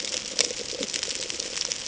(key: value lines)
label: ambient
recorder: HydroMoth